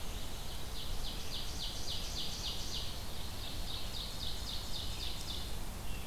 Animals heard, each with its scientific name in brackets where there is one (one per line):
Ovenbird (Seiurus aurocapilla)
Red-eyed Vireo (Vireo olivaceus)